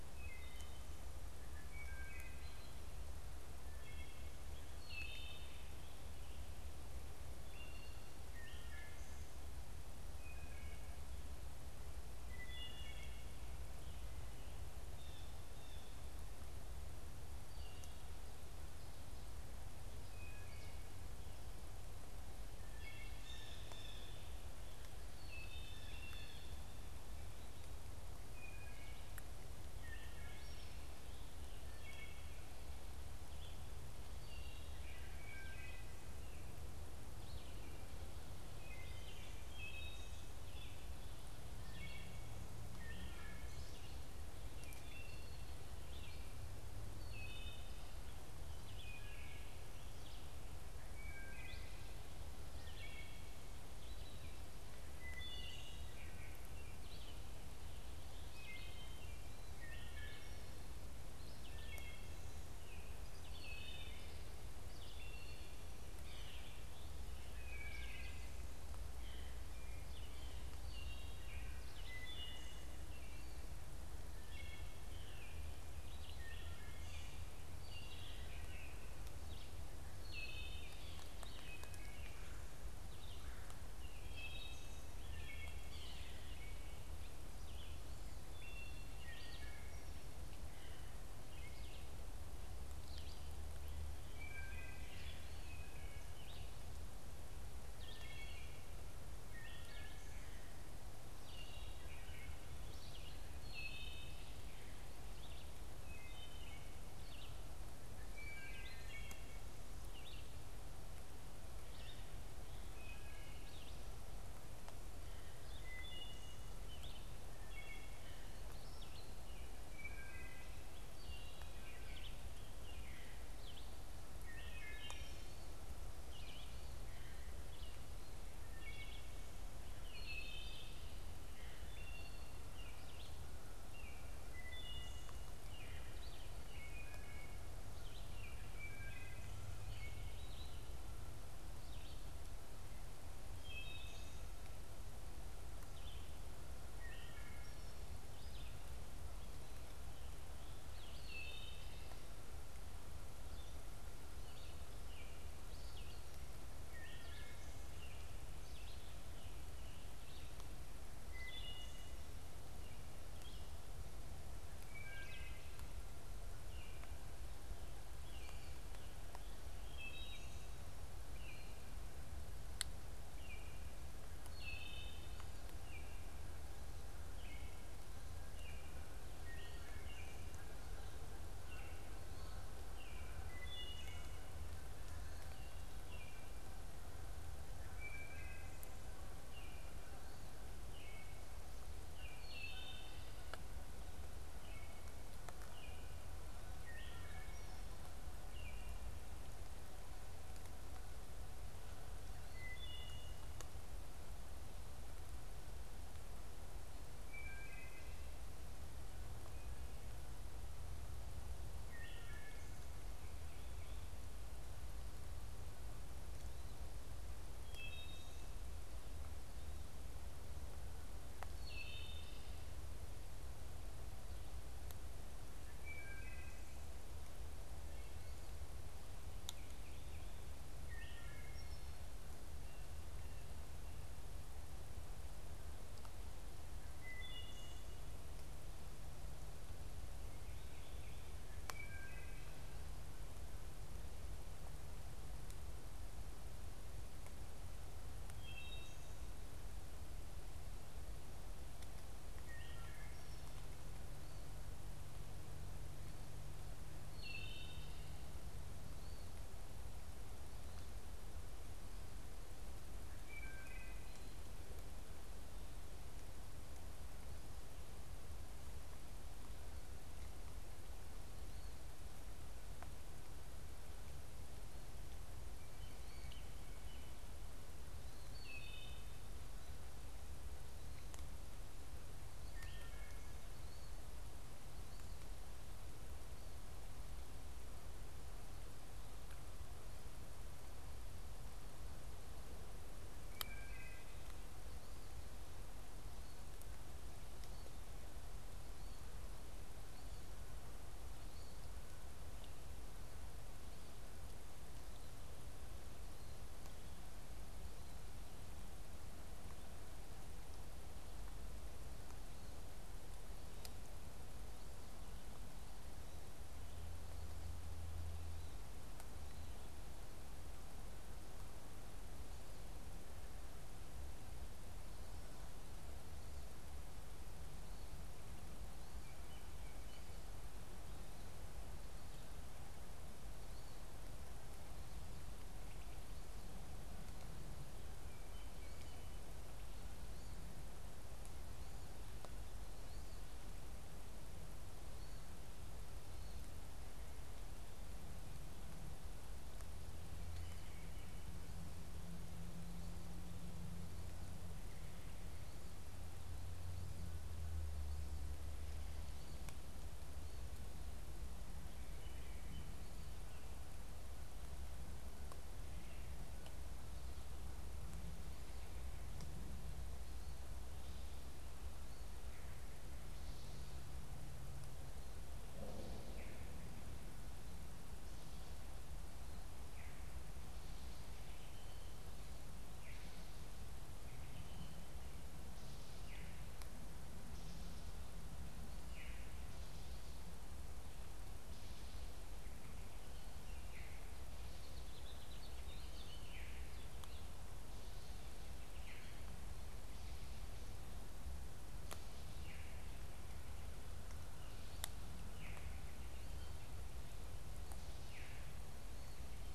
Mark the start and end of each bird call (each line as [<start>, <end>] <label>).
[0.00, 2.80] Wood Thrush (Hylocichla mustelina)
[3.40, 5.60] Wood Thrush (Hylocichla mustelina)
[7.40, 11.00] Wood Thrush (Hylocichla mustelina)
[12.10, 13.40] Wood Thrush (Hylocichla mustelina)
[14.90, 15.90] Blue Jay (Cyanocitta cristata)
[17.20, 18.10] Wood Thrush (Hylocichla mustelina)
[22.50, 73.60] Wood Thrush (Hylocichla mustelina)
[30.20, 72.40] Red-eyed Vireo (Vireo olivaceus)
[74.00, 125.50] Wood Thrush (Hylocichla mustelina)
[74.80, 75.50] unidentified bird
[75.80, 127.90] Red-eyed Vireo (Vireo olivaceus)
[85.60, 86.10] Yellow-bellied Sapsucker (Sphyrapicus varius)
[128.30, 180.50] Wood Thrush (Hylocichla mustelina)
[128.60, 180.40] Red-eyed Vireo (Vireo olivaceus)
[181.10, 183.20] Baltimore Oriole (Icterus galbula)
[183.20, 184.20] Wood Thrush (Hylocichla mustelina)
[185.70, 186.30] Baltimore Oriole (Icterus galbula)
[187.50, 188.60] Wood Thrush (Hylocichla mustelina)
[189.20, 191.40] Baltimore Oriole (Icterus galbula)
[191.90, 193.20] Wood Thrush (Hylocichla mustelina)
[194.10, 196.00] Baltimore Oriole (Icterus galbula)
[196.50, 197.50] Wood Thrush (Hylocichla mustelina)
[198.20, 198.80] Baltimore Oriole (Icterus galbula)
[202.20, 203.20] Wood Thrush (Hylocichla mustelina)
[207.00, 208.00] Wood Thrush (Hylocichla mustelina)
[211.50, 212.60] Wood Thrush (Hylocichla mustelina)
[217.30, 218.40] Wood Thrush (Hylocichla mustelina)
[221.30, 222.40] Wood Thrush (Hylocichla mustelina)
[225.40, 226.60] Wood Thrush (Hylocichla mustelina)
[229.20, 230.30] Baltimore Oriole (Icterus galbula)
[230.50, 231.60] Wood Thrush (Hylocichla mustelina)
[236.70, 237.90] Wood Thrush (Hylocichla mustelina)
[241.40, 242.50] Wood Thrush (Hylocichla mustelina)
[248.00, 248.80] Wood Thrush (Hylocichla mustelina)
[252.00, 253.20] Wood Thrush (Hylocichla mustelina)
[256.80, 257.90] Wood Thrush (Hylocichla mustelina)
[262.90, 264.00] Wood Thrush (Hylocichla mustelina)
[277.90, 279.00] Wood Thrush (Hylocichla mustelina)
[282.20, 283.20] Wood Thrush (Hylocichla mustelina)
[293.00, 293.90] Wood Thrush (Hylocichla mustelina)
[328.50, 329.90] unidentified bird
[337.70, 339.00] unidentified bird
[361.60, 362.60] unidentified bird
[375.80, 376.30] unidentified bird
[379.40, 379.60] unidentified bird
[382.50, 382.90] unidentified bird
[385.70, 386.10] unidentified bird
[388.70, 389.00] unidentified bird
[393.40, 393.80] unidentified bird
[394.10, 397.20] House Finch (Haemorhous mexicanus)
[396.10, 396.50] unidentified bird
[398.40, 398.90] unidentified bird
[402.10, 402.60] unidentified bird
[405.00, 405.50] unidentified bird
[407.80, 408.40] unidentified bird